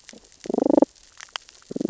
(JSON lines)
{"label": "biophony, damselfish", "recorder": "SoundTrap 600 or HydroMoth"}